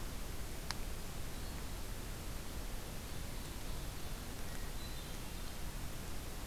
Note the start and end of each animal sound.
[2.96, 4.29] Ovenbird (Seiurus aurocapilla)
[4.34, 5.36] Hermit Thrush (Catharus guttatus)

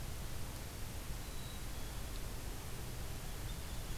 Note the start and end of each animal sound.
[1.11, 2.17] Black-capped Chickadee (Poecile atricapillus)

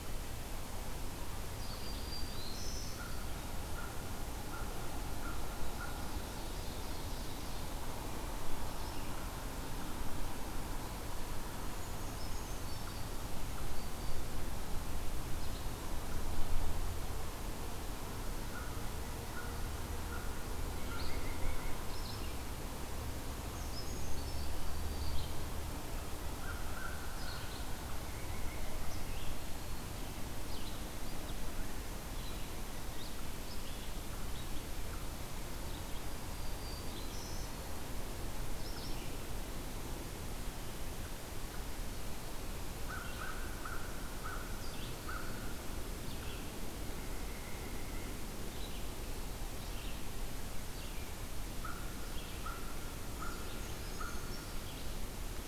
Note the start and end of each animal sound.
[0.00, 45.17] Red-eyed Vireo (Vireo olivaceus)
[1.48, 3.33] Black-throated Green Warbler (Setophaga virens)
[2.59, 6.50] American Crow (Corvus brachyrhynchos)
[5.41, 7.80] Ovenbird (Seiurus aurocapilla)
[11.53, 13.40] Brown Creeper (Certhia americana)
[18.48, 21.18] American Crow (Corvus brachyrhynchos)
[20.57, 21.83] White-breasted Nuthatch (Sitta carolinensis)
[23.30, 24.57] Brown Creeper (Certhia americana)
[26.25, 27.61] American Crow (Corvus brachyrhynchos)
[27.98, 29.24] White-breasted Nuthatch (Sitta carolinensis)
[35.83, 37.70] Black-throated Green Warbler (Setophaga virens)
[42.59, 45.55] American Crow (Corvus brachyrhynchos)
[45.84, 55.47] Red-eyed Vireo (Vireo olivaceus)
[46.81, 48.27] White-breasted Nuthatch (Sitta carolinensis)
[51.51, 54.64] American Crow (Corvus brachyrhynchos)
[52.96, 54.62] Brown Creeper (Certhia americana)

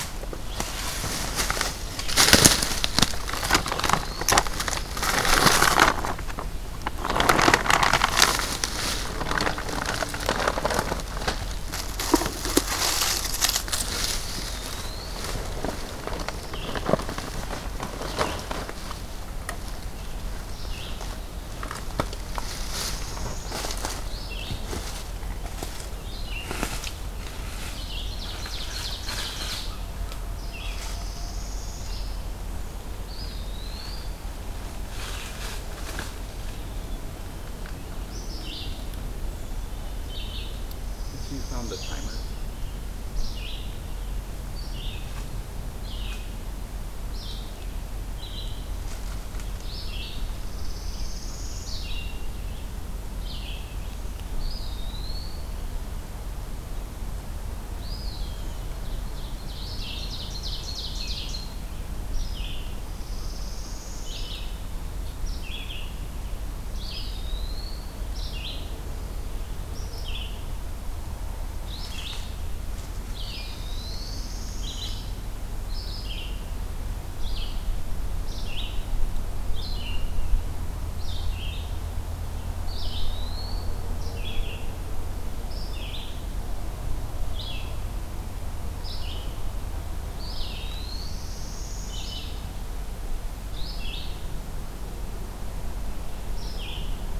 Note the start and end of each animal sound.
[3.25, 4.43] Eastern Wood-Pewee (Contopus virens)
[14.15, 15.32] Eastern Wood-Pewee (Contopus virens)
[16.04, 26.48] Red-eyed Vireo (Vireo olivaceus)
[27.60, 29.97] Ovenbird (Seiurus aurocapilla)
[27.66, 30.86] Red-eyed Vireo (Vireo olivaceus)
[30.24, 32.39] Northern Parula (Setophaga americana)
[32.92, 34.24] Eastern Wood-Pewee (Contopus virens)
[38.31, 50.27] Red-eyed Vireo (Vireo olivaceus)
[40.73, 42.52] Northern Parula (Setophaga americana)
[50.37, 52.17] Northern Parula (Setophaga americana)
[54.23, 55.71] Eastern Wood-Pewee (Contopus virens)
[57.70, 58.65] Eastern Wood-Pewee (Contopus virens)
[58.80, 61.77] Ovenbird (Seiurus aurocapilla)
[59.58, 61.49] Red-eyed Vireo (Vireo olivaceus)
[62.10, 81.92] Red-eyed Vireo (Vireo olivaceus)
[62.83, 64.71] Northern Parula (Setophaga americana)
[66.68, 68.04] Eastern Wood-Pewee (Contopus virens)
[73.34, 75.32] Northern Parula (Setophaga americana)
[82.60, 84.03] Eastern Wood-Pewee (Contopus virens)
[83.92, 89.48] Red-eyed Vireo (Vireo olivaceus)
[90.06, 92.37] Red-eyed Vireo (Vireo olivaceus)
[90.11, 91.35] Eastern Wood-Pewee (Contopus virens)
[90.88, 92.40] Northern Parula (Setophaga americana)
[93.38, 97.19] Red-eyed Vireo (Vireo olivaceus)

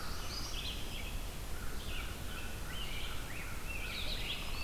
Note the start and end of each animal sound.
[0.00, 0.60] Black-throated Blue Warbler (Setophaga caerulescens)
[0.00, 4.64] Red-eyed Vireo (Vireo olivaceus)
[1.36, 3.29] American Crow (Corvus brachyrhynchos)
[2.60, 4.64] Rose-breasted Grosbeak (Pheucticus ludovicianus)
[3.89, 4.64] Black-throated Green Warbler (Setophaga virens)

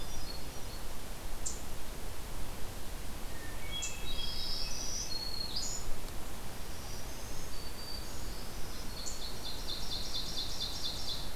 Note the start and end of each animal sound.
[0.00, 0.92] Hermit Thrush (Catharus guttatus)
[3.10, 4.85] Hermit Thrush (Catharus guttatus)
[4.13, 5.95] Black-throated Green Warbler (Setophaga virens)
[6.72, 9.54] Black-throated Green Warbler (Setophaga virens)
[9.02, 11.35] Ovenbird (Seiurus aurocapilla)

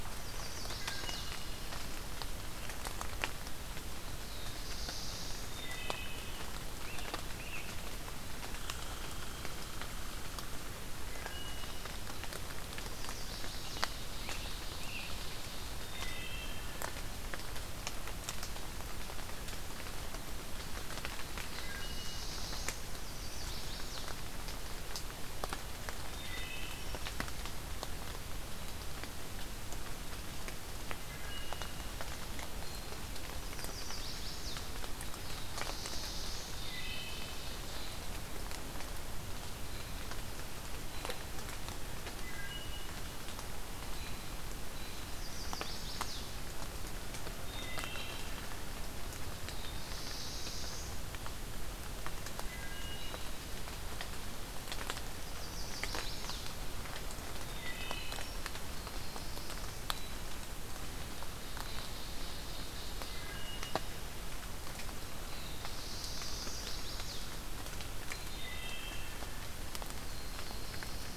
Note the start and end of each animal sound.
[0.00, 1.29] Chestnut-sided Warbler (Setophaga pensylvanica)
[0.77, 1.66] Wood Thrush (Hylocichla mustelina)
[4.02, 5.71] Black-throated Blue Warbler (Setophaga caerulescens)
[5.47, 6.22] Wood Thrush (Hylocichla mustelina)
[5.87, 7.77] American Robin (Turdus migratorius)
[8.61, 10.86] Red Squirrel (Tamiasciurus hudsonicus)
[11.24, 11.71] Wood Thrush (Hylocichla mustelina)
[12.76, 13.96] Chestnut-sided Warbler (Setophaga pensylvanica)
[13.65, 15.72] Black-throated Blue Warbler (Setophaga caerulescens)
[14.12, 15.19] American Robin (Turdus migratorius)
[15.74, 16.77] Wood Thrush (Hylocichla mustelina)
[21.27, 22.93] Black-throated Blue Warbler (Setophaga caerulescens)
[21.46, 22.23] Wood Thrush (Hylocichla mustelina)
[22.82, 24.16] Chestnut-sided Warbler (Setophaga pensylvanica)
[26.27, 26.84] Wood Thrush (Hylocichla mustelina)
[31.06, 31.81] Wood Thrush (Hylocichla mustelina)
[33.29, 34.59] Chestnut-sided Warbler (Setophaga pensylvanica)
[35.06, 36.55] Black-throated Blue Warbler (Setophaga caerulescens)
[36.60, 37.60] Wood Thrush (Hylocichla mustelina)
[41.95, 42.89] Wood Thrush (Hylocichla mustelina)
[44.96, 46.33] Chestnut-sided Warbler (Setophaga pensylvanica)
[47.45, 48.31] Wood Thrush (Hylocichla mustelina)
[49.29, 51.05] Black-throated Blue Warbler (Setophaga caerulescens)
[52.30, 53.44] Wood Thrush (Hylocichla mustelina)
[55.21, 56.67] Chestnut-sided Warbler (Setophaga pensylvanica)
[57.44, 58.35] Wood Thrush (Hylocichla mustelina)
[58.52, 59.94] Black-throated Blue Warbler (Setophaga caerulescens)
[61.21, 63.35] Black-throated Blue Warbler (Setophaga caerulescens)
[63.12, 63.77] Wood Thrush (Hylocichla mustelina)
[65.00, 66.72] Black-throated Blue Warbler (Setophaga caerulescens)
[66.18, 67.21] Chestnut-sided Warbler (Setophaga pensylvanica)
[68.09, 69.16] Wood Thrush (Hylocichla mustelina)
[69.81, 71.16] Black-throated Blue Warbler (Setophaga caerulescens)

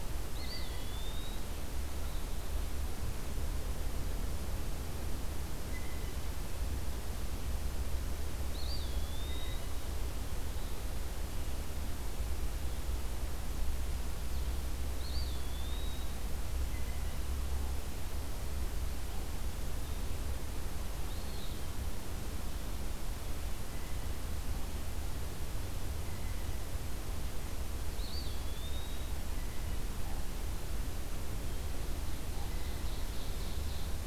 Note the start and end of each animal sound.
[0.16, 1.57] Eastern Wood-Pewee (Contopus virens)
[8.35, 9.67] Eastern Wood-Pewee (Contopus virens)
[14.83, 16.14] Eastern Wood-Pewee (Contopus virens)
[20.95, 21.66] Eastern Wood-Pewee (Contopus virens)
[27.75, 29.22] Eastern Wood-Pewee (Contopus virens)
[31.86, 34.06] Ovenbird (Seiurus aurocapilla)

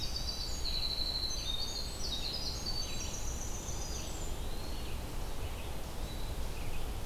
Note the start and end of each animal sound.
[0.00, 4.52] Winter Wren (Troglodytes hiemalis)
[0.00, 7.06] Red-eyed Vireo (Vireo olivaceus)
[4.32, 5.17] Eastern Wood-Pewee (Contopus virens)

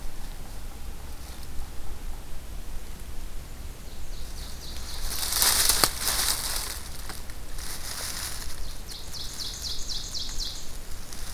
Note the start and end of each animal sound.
[3.68, 6.45] Ovenbird (Seiurus aurocapilla)
[8.41, 10.82] Ovenbird (Seiurus aurocapilla)

